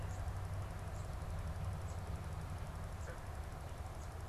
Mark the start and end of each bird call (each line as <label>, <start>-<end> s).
unidentified bird, 0.0-3.3 s